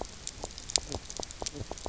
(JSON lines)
{"label": "biophony, knock croak", "recorder": "SoundTrap 300"}